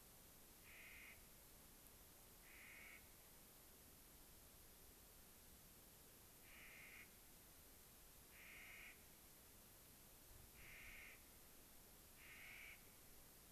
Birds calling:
Clark's Nutcracker (Nucifraga columbiana)

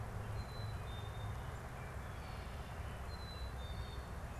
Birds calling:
Black-capped Chickadee (Poecile atricapillus)

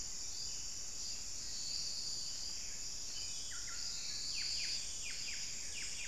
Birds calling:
Buff-breasted Wren (Cantorchilus leucotis)

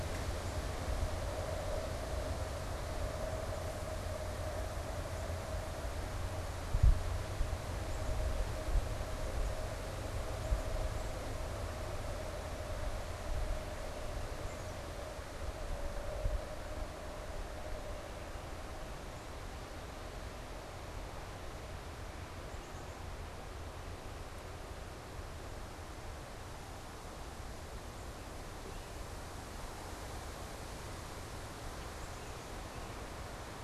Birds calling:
Black-capped Chickadee (Poecile atricapillus)

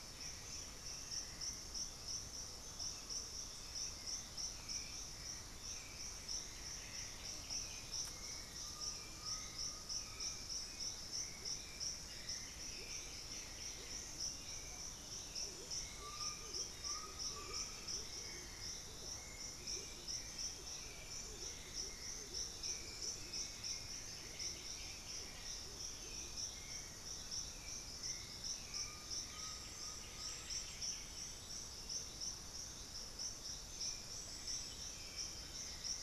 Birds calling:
Horned Screamer (Anhima cornuta)
Chestnut-winged Foliage-gleaner (Dendroma erythroptera)
White-winged Becard (Pachyramphus polychopterus)
Russet-backed Oropendola (Psarocolius angustifrons)
Hauxwell's Thrush (Turdus hauxwelli)
Undulated Tinamou (Crypturellus undulatus)
White-bellied Tody-Tyrant (Hemitriccus griseipectus)

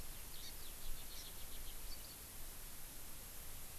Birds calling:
Eurasian Skylark (Alauda arvensis)

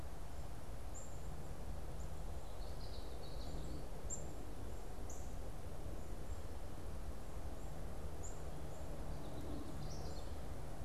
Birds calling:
Common Yellowthroat (Geothlypis trichas)
Black-capped Chickadee (Poecile atricapillus)
Northern Cardinal (Cardinalis cardinalis)

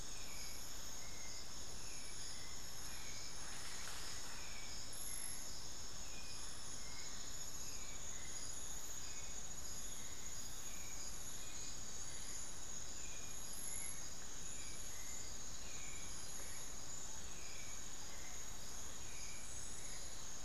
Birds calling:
unidentified bird
Hauxwell's Thrush (Turdus hauxwelli)

